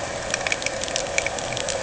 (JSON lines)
{"label": "anthrophony, boat engine", "recorder": "HydroMoth"}